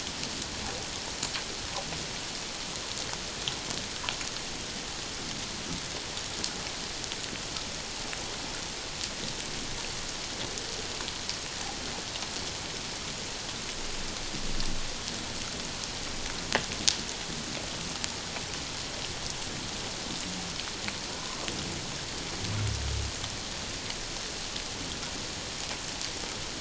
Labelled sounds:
21.2	21.4	humpback whale, 0.97 to 1.2 kHz

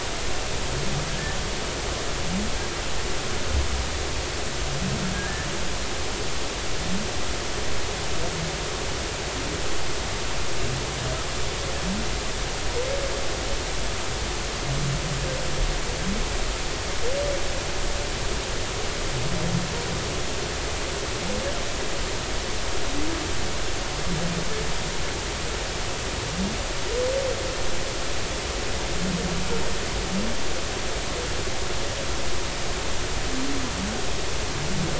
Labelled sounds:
1.1	1.4	humpback whale, 1.6 to 1.9 kHz
5.1	5.5	humpback whale, 1.6 to 1.8 kHz

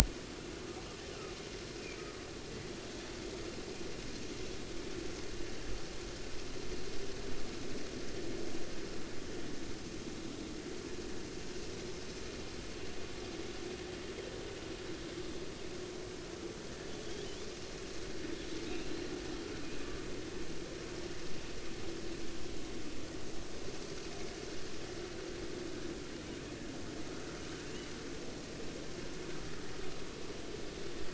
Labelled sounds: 1.8	2.0	killer whale, offshore, 2.2 to 2.6 kHz
18.7	19.0	killer whale, offshore, 2.3 to 2.8 kHz
27.7	27.9	killer whale, offshore, 2.7 to 3.0 kHz

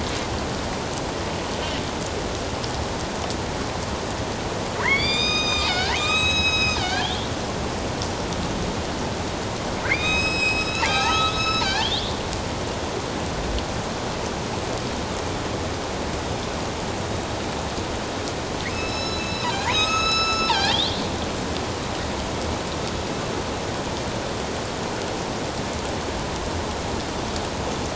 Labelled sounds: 4.8	7.3	killer whale, northern resident, A clan, AB subclan, 1.2 to 7.8 kHz
9.8	12.1	killer whale, northern resident, A clan, AB subclan, 0.78 to 7.8 kHz
18.7	20.8	killer whale, northern resident, A clan, AB subclan, 0.78 to 7.9 kHz

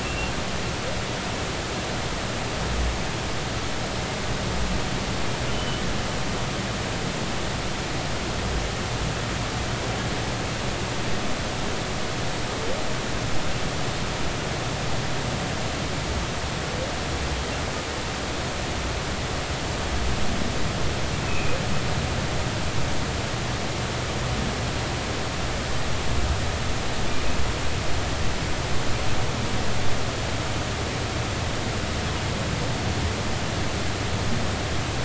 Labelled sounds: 0.0	0.3	humpback whale, 2.6 to 2.8 kHz
5.5	5.8	humpback whale, 2.9 to 3.1 kHz
21.3	21.6	humpback whale, 2.3 to 2.6 kHz

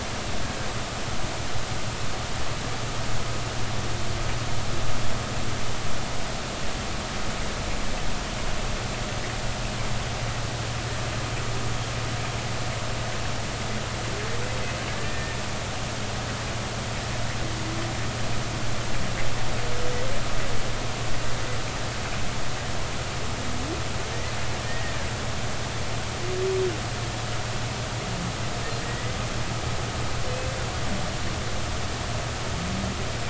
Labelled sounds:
15.0	15.4	humpback whale, 1.7 to 1.9 kHz
24.7	24.9	humpback whale, 1.8 to 1.9 kHz
28.8	29.1	humpback whale, 1.8 to 2.0 kHz
30.3	30.5	humpback whale, 2.5 to 2.7 kHz

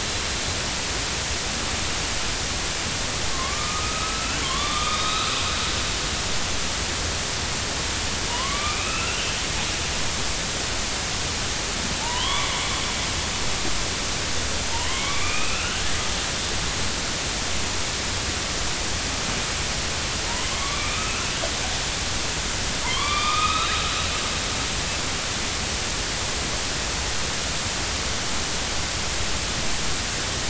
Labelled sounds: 3.3	5.3	killer whale, northern resident, A clan, AB subclan, 0.99 to 4.0 kHz
8.3	9.3	killer whale, northern resident, A clan, AB subclan, 0.90 to 2.9 kHz
12.0	12.5	killer whale, northern resident, A clan, AB subclan, 0.83 to 3.5 kHz
14.7	16.1	killer whale, northern resident, A clan, AB subclan, 0.83 to 3.1 kHz
20.6	21.3	killer whale, northern resident, A clan, AB subclan, 1.1 to 2.6 kHz
22.8	23.7	killer whale, northern resident, A clan, AB subclan, 0.86 to 4.0 kHz

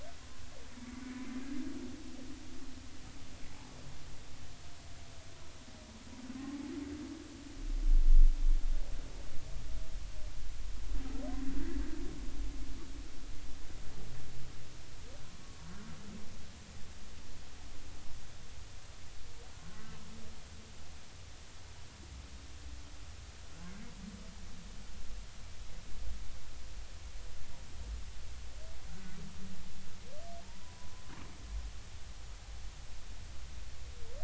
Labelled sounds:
19.6	19.9	humpback whale, 1.0 to 1.1 kHz
30.8	31.0	humpback whale, 0.96 to 1.1 kHz

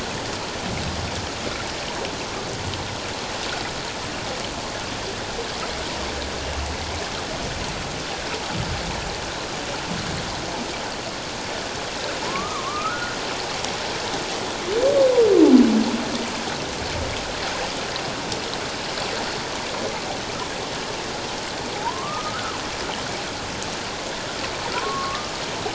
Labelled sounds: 12.2	13.2	humpback whale, 0.84 to 1.6 kHz
21.7	22.5	humpback whale, 0.78 to 1.6 kHz
24.7	25.3	humpback whale, 0.94 to 1.2 kHz

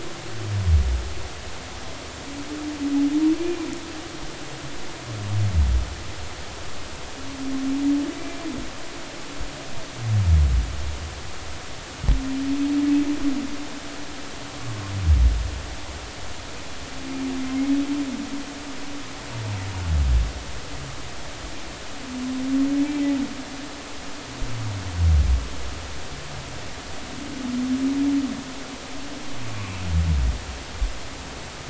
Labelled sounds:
15.6	15.8	humpback whale, 1.1 to 1.2 kHz
22.8	23.1	humpback whale, 2.2 to 2.4 kHz
29.5	29.8	humpback whale, 2.3 to 2.5 kHz

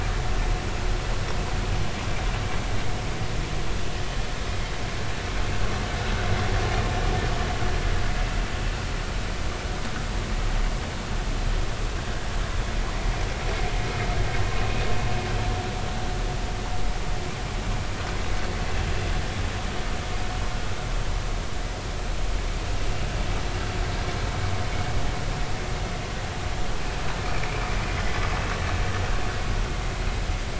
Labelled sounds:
27.2	27.7	vessel noise, 2.1 to 2.6 kHz

